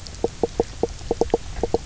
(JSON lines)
{"label": "biophony, knock croak", "recorder": "SoundTrap 300"}